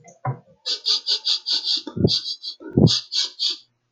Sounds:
Sniff